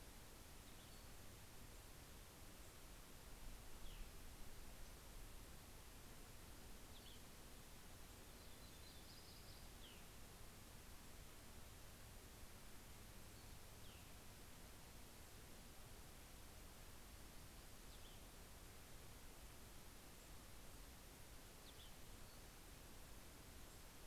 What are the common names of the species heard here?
Yellow-rumped Warbler, Cassin's Vireo